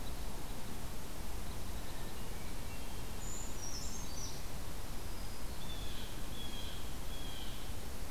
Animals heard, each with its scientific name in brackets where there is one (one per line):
Red Crossbill (Loxia curvirostra)
Brown Creeper (Certhia americana)
Blue Jay (Cyanocitta cristata)
Hermit Thrush (Catharus guttatus)